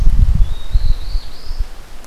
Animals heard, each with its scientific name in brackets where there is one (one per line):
Black-throated Blue Warbler (Setophaga caerulescens)